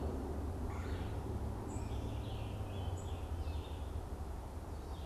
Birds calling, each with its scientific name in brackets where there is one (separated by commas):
Red-bellied Woodpecker (Melanerpes carolinus), Red-eyed Vireo (Vireo olivaceus), Scarlet Tanager (Piranga olivacea)